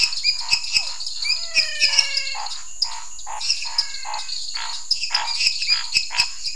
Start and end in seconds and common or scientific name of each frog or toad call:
0.0	1.0	Physalaemus cuvieri
0.0	6.5	lesser tree frog
0.0	6.5	dwarf tree frog
0.0	6.5	Scinax fuscovarius
0.2	0.4	Leptodactylus elenae
1.3	2.5	menwig frog
3.5	4.4	menwig frog
5.6	5.8	Leptodactylus elenae